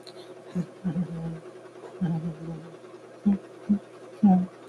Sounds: Laughter